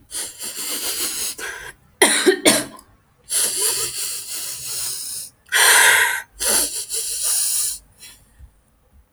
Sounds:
Sniff